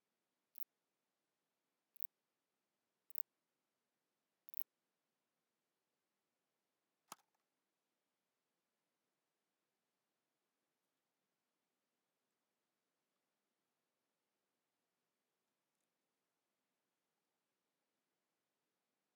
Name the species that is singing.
Phaneroptera nana